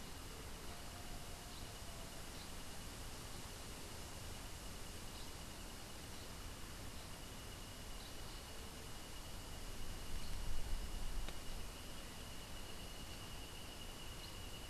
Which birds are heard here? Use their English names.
Black-headed Saltator